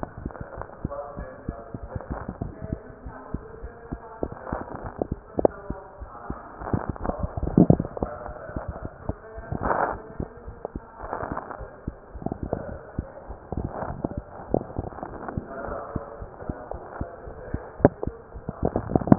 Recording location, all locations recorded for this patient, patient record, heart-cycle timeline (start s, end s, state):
mitral valve (MV)
aortic valve (AV)+pulmonary valve (PV)+tricuspid valve (TV)+mitral valve (MV)
#Age: Child
#Sex: Male
#Height: 94.0 cm
#Weight: 13.5 kg
#Pregnancy status: False
#Murmur: Absent
#Murmur locations: nan
#Most audible location: nan
#Systolic murmur timing: nan
#Systolic murmur shape: nan
#Systolic murmur grading: nan
#Systolic murmur pitch: nan
#Systolic murmur quality: nan
#Diastolic murmur timing: nan
#Diastolic murmur shape: nan
#Diastolic murmur grading: nan
#Diastolic murmur pitch: nan
#Diastolic murmur quality: nan
#Outcome: Normal
#Campaign: 2015 screening campaign
0.00	3.03	unannotated
3.03	3.14	S1
3.14	3.28	systole
3.28	3.42	S2
3.42	3.62	diastole
3.62	3.72	S1
3.72	3.86	systole
3.86	4.00	S2
4.00	4.21	diastole
4.21	4.36	S1
4.36	4.48	systole
4.48	4.60	S2
4.60	4.82	diastole
4.82	4.94	S1
4.94	5.08	systole
5.08	5.15	S2
5.15	5.35	diastole
5.35	5.49	S1
5.49	5.66	systole
5.66	5.78	S2
5.78	5.97	diastole
5.97	6.12	S1
6.12	6.26	systole
6.26	6.38	S2
6.38	6.60	diastole
6.60	6.70	S1
6.70	19.18	unannotated